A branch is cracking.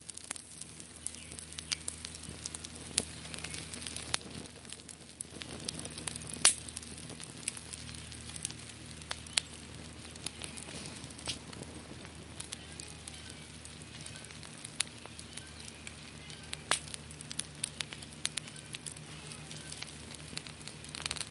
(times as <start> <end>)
6.3 6.7